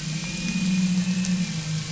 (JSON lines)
{"label": "anthrophony, boat engine", "recorder": "SoundTrap 500"}